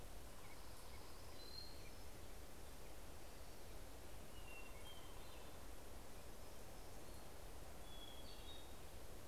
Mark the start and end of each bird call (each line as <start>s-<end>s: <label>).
0.0s-2.3s: Orange-crowned Warbler (Leiothlypis celata)
1.1s-2.4s: Hermit Thrush (Catharus guttatus)
3.8s-6.2s: Hermit Thrush (Catharus guttatus)
5.4s-7.9s: Hermit Warbler (Setophaga occidentalis)
7.5s-9.2s: Hermit Thrush (Catharus guttatus)